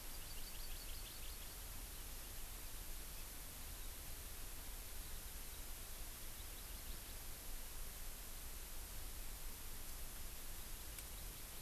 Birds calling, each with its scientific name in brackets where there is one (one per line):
Hawaii Amakihi (Chlorodrepanis virens)